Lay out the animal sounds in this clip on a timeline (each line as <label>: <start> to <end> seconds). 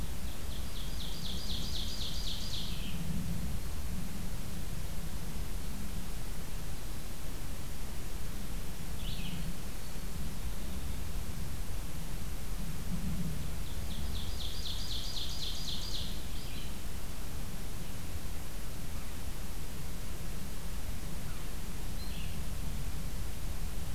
Ovenbird (Seiurus aurocapilla): 0.0 to 3.2 seconds
Red-eyed Vireo (Vireo olivaceus): 8.9 to 9.5 seconds
Ovenbird (Seiurus aurocapilla): 13.5 to 16.1 seconds
Red-eyed Vireo (Vireo olivaceus): 16.2 to 16.8 seconds
Red-eyed Vireo (Vireo olivaceus): 21.9 to 22.4 seconds